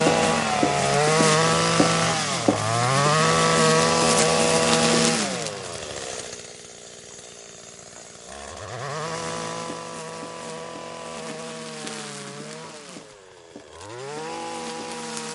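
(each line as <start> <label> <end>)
0.0 A lawnmower is loudly and aggressively cutting bushes nearby. 5.6
5.6 A lawnmower is cutting bushes in the distance. 15.3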